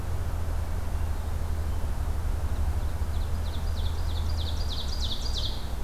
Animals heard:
Ovenbird (Seiurus aurocapilla)

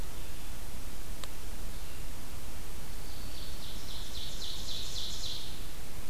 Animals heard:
Ovenbird (Seiurus aurocapilla)
Red-eyed Vireo (Vireo olivaceus)

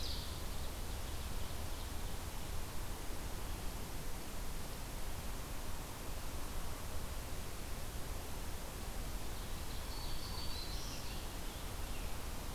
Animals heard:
Black-throated Green Warbler (Setophaga virens)
Ovenbird (Seiurus aurocapilla)
Scarlet Tanager (Piranga olivacea)

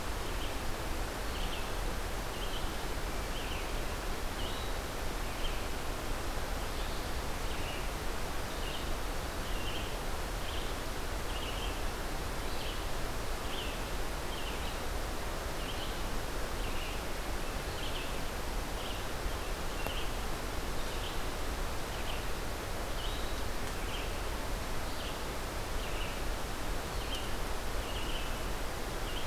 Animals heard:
Red-eyed Vireo (Vireo olivaceus)

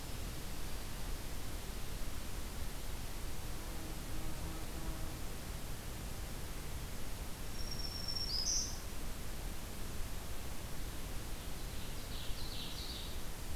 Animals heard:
Ovenbird (Seiurus aurocapilla)
Black-throated Green Warbler (Setophaga virens)

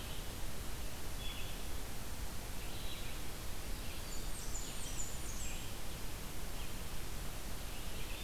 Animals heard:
Red-eyed Vireo (Vireo olivaceus)
Blackburnian Warbler (Setophaga fusca)

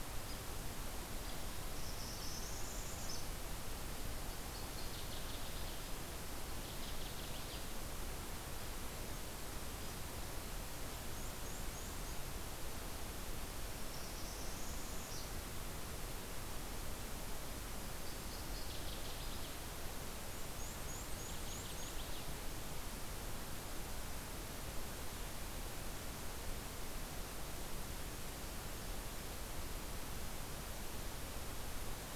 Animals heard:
Cape May Warbler (Setophaga tigrina)
Northern Parula (Setophaga americana)
Northern Waterthrush (Parkesia noveboracensis)

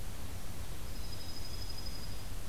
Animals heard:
Dark-eyed Junco (Junco hyemalis)
Black-capped Chickadee (Poecile atricapillus)

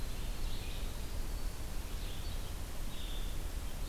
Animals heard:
Winter Wren (Troglodytes hiemalis)
Red-eyed Vireo (Vireo olivaceus)

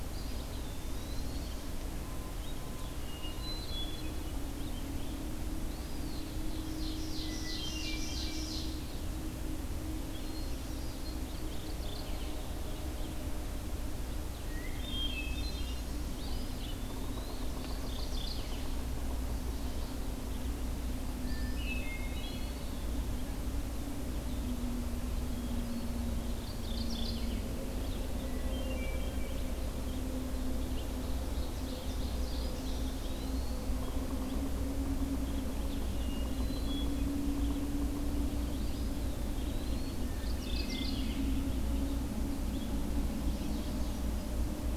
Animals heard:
Eastern Wood-Pewee (Contopus virens)
Red-eyed Vireo (Vireo olivaceus)
Hermit Thrush (Catharus guttatus)
Mourning Warbler (Geothlypis philadelphia)
Ovenbird (Seiurus aurocapilla)

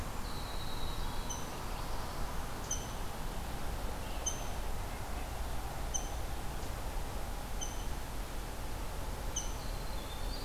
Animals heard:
Rose-breasted Grosbeak (Pheucticus ludovicianus)
Winter Wren (Troglodytes hiemalis)

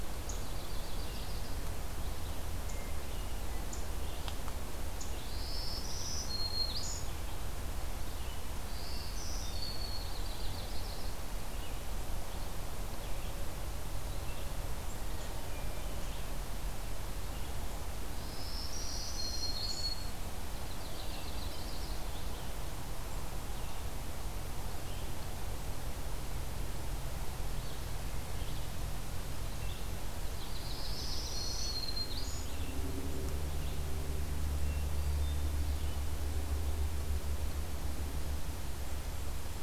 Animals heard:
Red-eyed Vireo (Vireo olivaceus)
Hermit Thrush (Catharus guttatus)
Yellow-rumped Warbler (Setophaga coronata)
Black-throated Green Warbler (Setophaga virens)

